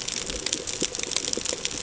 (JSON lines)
{"label": "ambient", "recorder": "HydroMoth"}